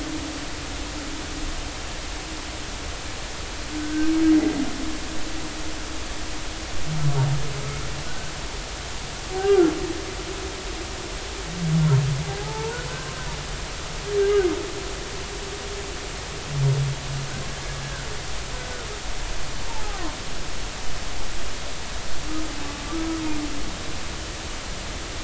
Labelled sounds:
8.1	8.3	humpback whale, 1.4 to 1.6 kHz
9.4	9.7	humpback whale, 1.3 to 1.7 kHz
12.4	12.8	humpback whale, 0.80 to 1.0 kHz
14.2	14.5	humpback whale, 1.4 to 1.7 kHz
19.9	20.2	humpback whale, 0.99 to 1.3 kHz

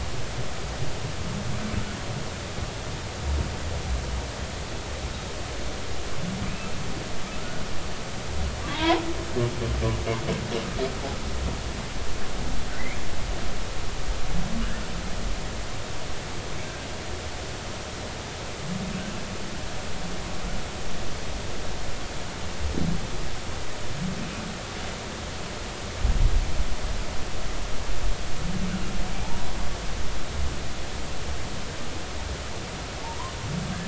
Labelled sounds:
8.7	9.0	humpback whale, 0.80 to 1.1 kHz
29.2	29.5	humpback whale, 0.80 to 1.0 kHz

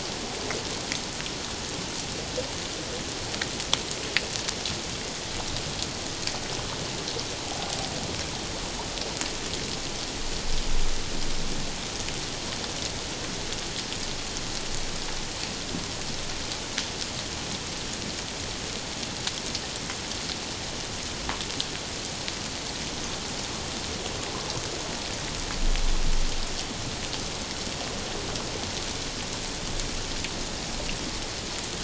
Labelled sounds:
7.4	7.7	humpback whale, 0.78 to 0.84 kHz

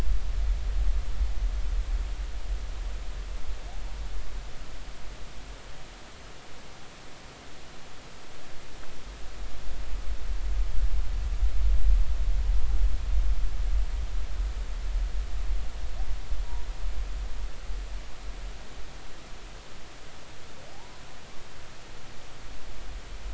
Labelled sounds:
20.7	21.0	humpback whale, 0.80 to 1.1 kHz

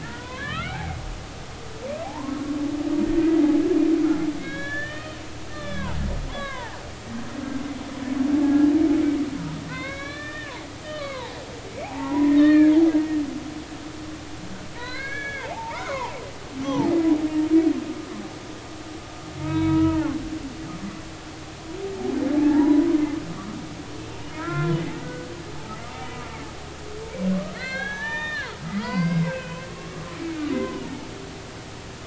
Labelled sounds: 0.0	1.0	humpback whale, 0.80 to 3.0 kHz
2.0	2.3	humpback whale, 0.80 to 1.1 kHz
3.2	3.4	humpback whale, 1.9 to 2.0 kHz
4.4	5.2	humpback whale, 1.1 to 4.4 kHz
5.5	6.8	humpback whale, 0.80 to 4.0 kHz
8.4	8.7	humpback whale, 1.6 to 1.7 kHz
9.7	11.4	humpback whale, 0.80 to 4.4 kHz
11.8	12.7	humpback whale, 0.80 to 3.8 kHz
14.8	16.2	humpback whale, 0.80 to 6.2 kHz
16.6	16.9	humpback whale, 0.80 to 1.2 kHz
19.4	20.2	humpback whale, 0.80 to 3.9 kHz
22.4	22.9	humpback whale, 0.80 to 1.0 kHz
24.4	25.3	humpback whale, 0.99 to 3.5 kHz
26.2	26.4	humpback whale, 1.1 to 1.2 kHz
27.5	29.7	humpback whale, 0.80 to 5.4 kHz
30.8	31.1	humpback whale, 0.80 to 0.96 kHz

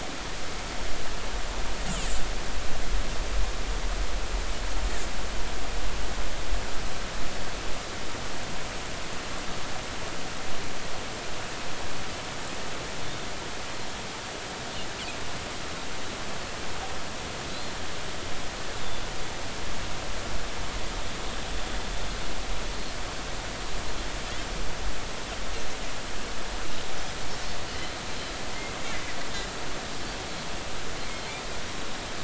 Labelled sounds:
17.5	17.8	Pacific white-sided dolphin, 3.9 to 4.4 kHz

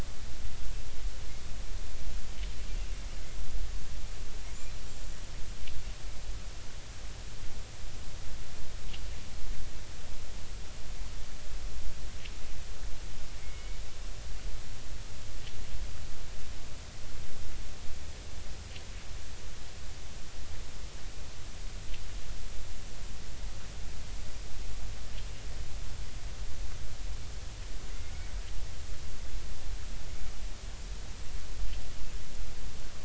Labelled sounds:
13.4	13.8	killer whale, Bigg's (transient), 2.1 to 2.3 kHz

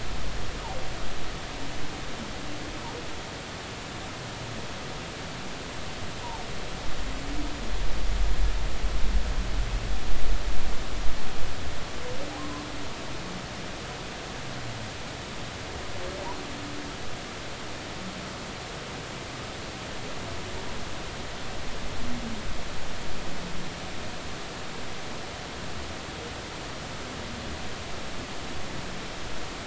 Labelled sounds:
12.4	12.7	humpback whale, 0.96 to 1.2 kHz

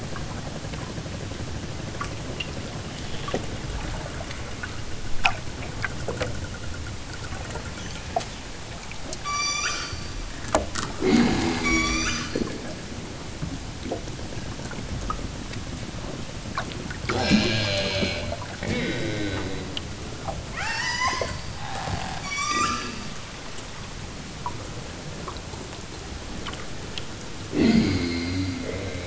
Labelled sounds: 9.2	9.9	killer whale, southern Alaska resident, 0.73 to 8.0 kHz
11.6	12.3	killer whale, southern Alaska resident, 0.78 to 8.0 kHz
20.5	21.4	killer whale, southern Alaska resident, 0.41 to 8.0 kHz
22.2	22.9	killer whale, southern Alaska resident, 0.78 to 8.0 kHz

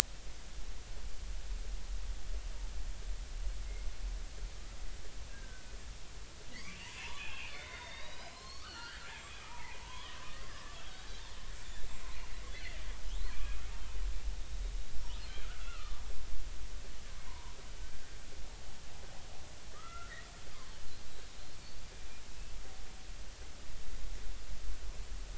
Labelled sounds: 5.3	5.7	killer whale, Bigg's (transient), 1.4 to 1.7 kHz
6.5	10.2	killer whale, Bigg's (transient), 0.83 to 7.7 kHz
10.5	10.7	killer whale, Bigg's (transient), 1.6 to 1.9 kHz
12.5	13.6	killer whale, Bigg's (transient), 1.9 to 2.6 kHz
15.4	16.0	killer whale, Bigg's (transient), 1.1 to 2.8 kHz
17.3	17.5	killer whale, Bigg's (transient), 0.90 to 1.1 kHz
19.7	20.1	killer whale, Bigg's (transient), 1.1 to 2.1 kHz

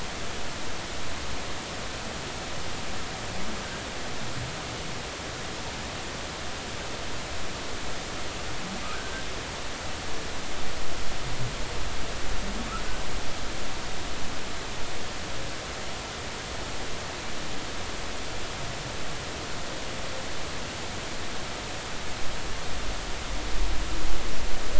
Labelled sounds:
8.8	9.1	humpback whale, 1.2 to 1.6 kHz

